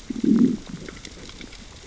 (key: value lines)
label: biophony, growl
recorder: SoundTrap 600 or HydroMoth